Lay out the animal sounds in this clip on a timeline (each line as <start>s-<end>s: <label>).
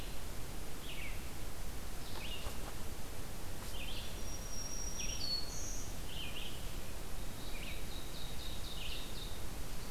0.0s-9.9s: Red-eyed Vireo (Vireo olivaceus)
4.1s-5.9s: Black-throated Green Warbler (Setophaga virens)
7.1s-9.4s: Ovenbird (Seiurus aurocapilla)
9.4s-9.9s: Northern Parula (Setophaga americana)